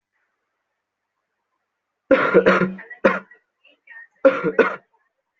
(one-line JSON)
{"expert_labels": [{"quality": "good", "cough_type": "dry", "dyspnea": false, "wheezing": false, "stridor": false, "choking": false, "congestion": false, "nothing": true, "diagnosis": "COVID-19", "severity": "mild"}], "age": 25, "gender": "male", "respiratory_condition": true, "fever_muscle_pain": true, "status": "COVID-19"}